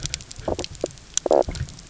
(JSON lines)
{"label": "biophony, knock croak", "recorder": "SoundTrap 300"}